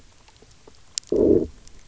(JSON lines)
{"label": "biophony, low growl", "recorder": "SoundTrap 300"}